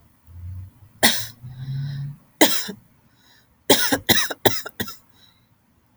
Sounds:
Cough